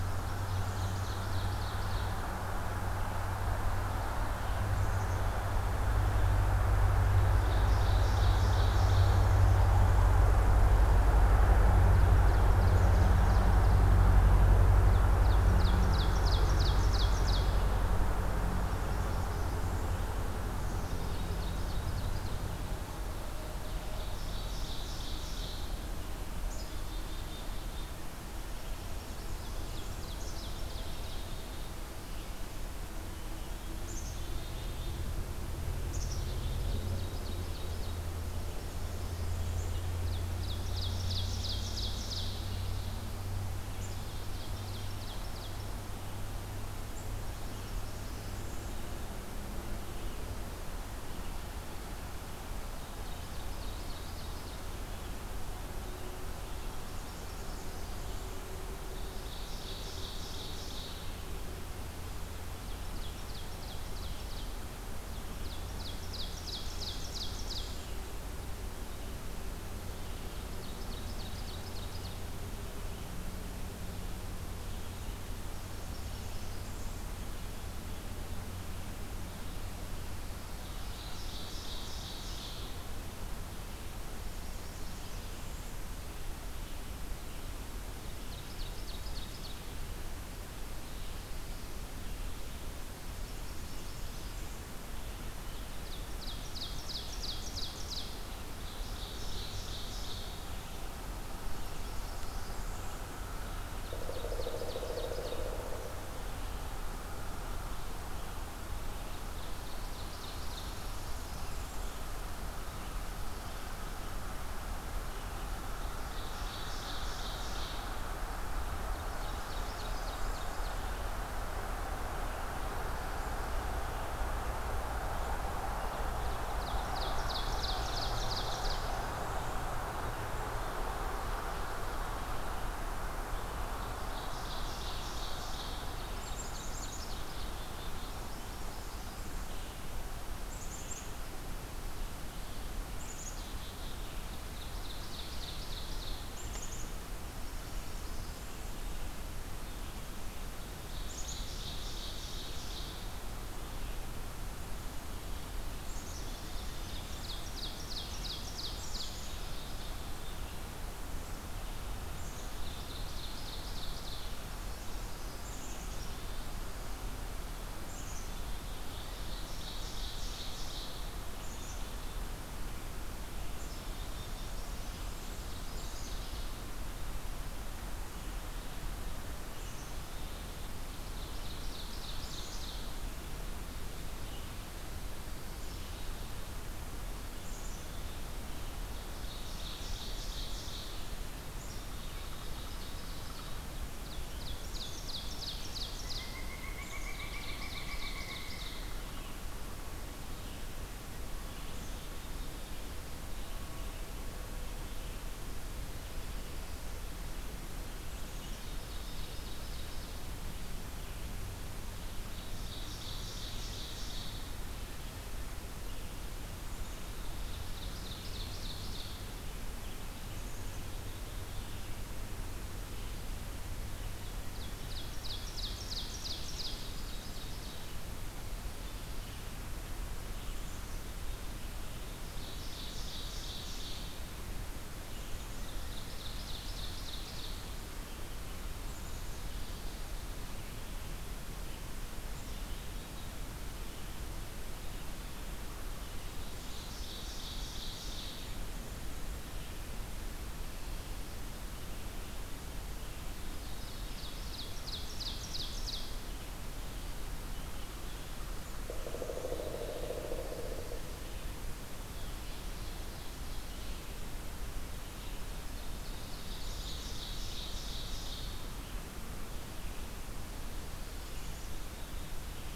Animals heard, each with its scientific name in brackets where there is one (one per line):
Pileated Woodpecker (Dryocopus pileatus)
Blackburnian Warbler (Setophaga fusca)
Ovenbird (Seiurus aurocapilla)
Black-capped Chickadee (Poecile atricapillus)